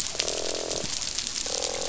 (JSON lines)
{"label": "biophony, croak", "recorder": "SoundTrap 500"}